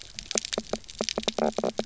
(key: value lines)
label: biophony, knock croak
recorder: SoundTrap 300